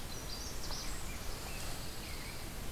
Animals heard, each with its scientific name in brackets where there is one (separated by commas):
Magnolia Warbler (Setophaga magnolia), Golden-crowned Kinglet (Regulus satrapa), Pine Warbler (Setophaga pinus)